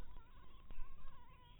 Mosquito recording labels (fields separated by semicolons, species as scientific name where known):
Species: mosquito; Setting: cup